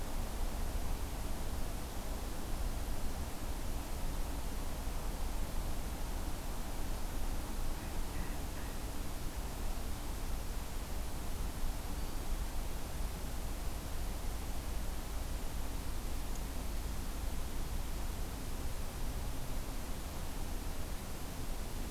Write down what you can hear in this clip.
Black-throated Green Warbler